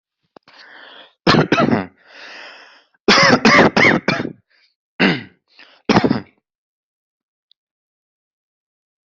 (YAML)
expert_labels:
- quality: good
  cough_type: wet
  dyspnea: false
  wheezing: false
  stridor: false
  choking: false
  congestion: false
  nothing: true
  diagnosis: upper respiratory tract infection
  severity: mild